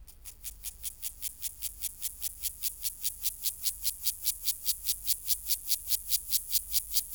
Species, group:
Gomphocerus sibiricus, Orthoptera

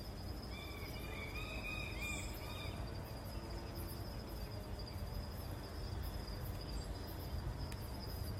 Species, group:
Ornebius aperta, Orthoptera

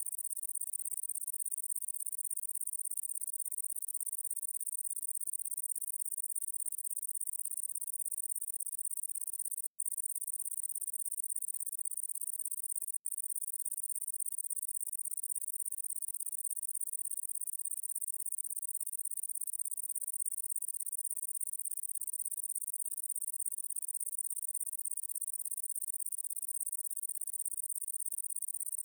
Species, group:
Tettigonia viridissima, Orthoptera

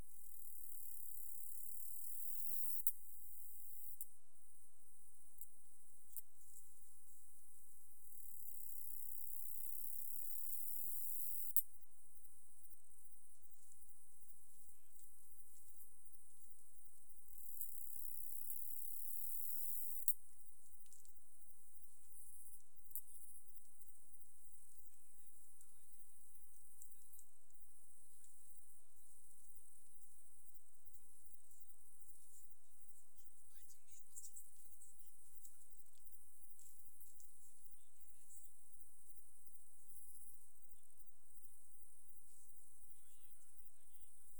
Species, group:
Acrometopa servillea, Orthoptera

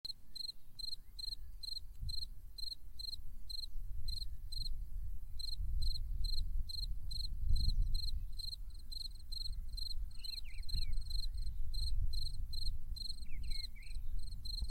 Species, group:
Gryllus campestris, Orthoptera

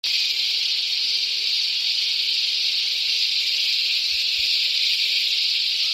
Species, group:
Henicopsaltria eydouxii, Cicadidae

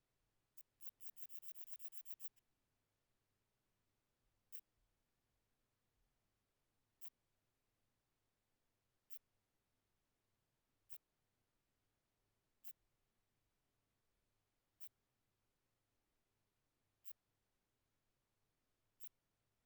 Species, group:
Phaneroptera falcata, Orthoptera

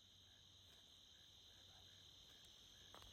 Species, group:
Neocurtilla hexadactyla, Orthoptera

